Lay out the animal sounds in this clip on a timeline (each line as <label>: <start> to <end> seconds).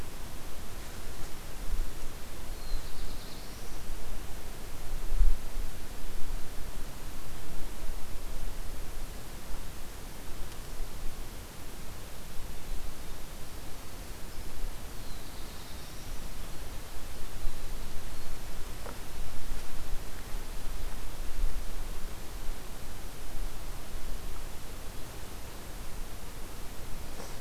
Black-throated Blue Warbler (Setophaga caerulescens): 2.4 to 3.9 seconds
Black-throated Blue Warbler (Setophaga caerulescens): 14.9 to 16.4 seconds